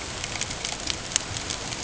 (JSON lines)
{"label": "ambient", "recorder": "HydroMoth"}